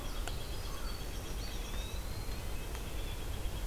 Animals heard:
White-breasted Nuthatch (Sitta carolinensis)
Eastern Wood-Pewee (Contopus virens)
American Crow (Corvus brachyrhynchos)
Winter Wren (Troglodytes hiemalis)

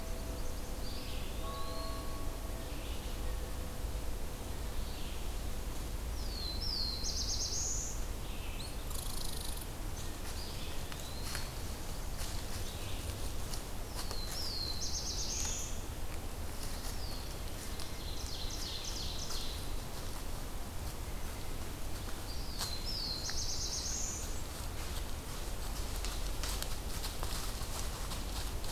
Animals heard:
Eastern Wood-Pewee (Contopus virens)
Ovenbird (Seiurus aurocapilla)
Red-eyed Vireo (Vireo olivaceus)
Black-throated Blue Warbler (Setophaga caerulescens)
Red Squirrel (Tamiasciurus hudsonicus)
Blackburnian Warbler (Setophaga fusca)

